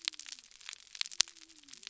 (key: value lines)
label: biophony
recorder: SoundTrap 300